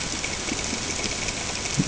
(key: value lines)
label: ambient
recorder: HydroMoth